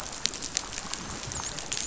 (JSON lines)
{"label": "biophony, dolphin", "recorder": "SoundTrap 500"}